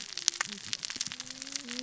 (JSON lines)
{"label": "biophony, cascading saw", "recorder": "SoundTrap 600 or HydroMoth"}